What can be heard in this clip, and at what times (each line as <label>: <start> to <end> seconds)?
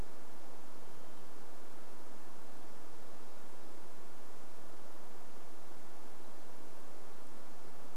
Varied Thrush song: 0 to 2 seconds